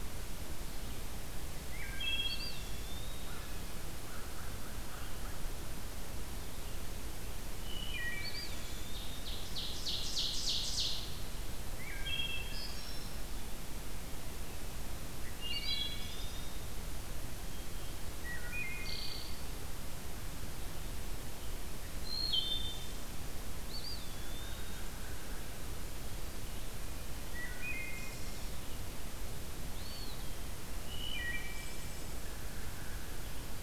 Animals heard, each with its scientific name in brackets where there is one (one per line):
Eastern Wood-Pewee (Contopus virens)
American Crow (Corvus brachyrhynchos)
Ovenbird (Seiurus aurocapilla)
Wood Thrush (Hylocichla mustelina)